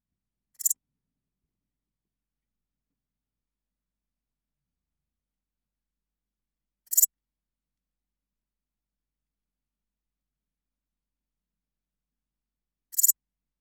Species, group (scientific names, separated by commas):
Pholidoptera transsylvanica, Orthoptera